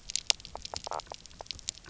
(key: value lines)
label: biophony, knock croak
recorder: SoundTrap 300